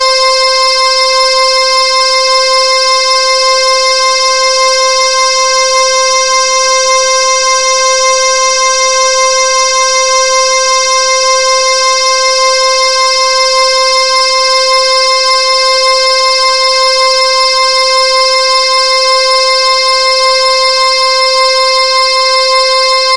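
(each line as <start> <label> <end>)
0.0 An emergency alarm sounds continuously in a steady rhythm. 23.2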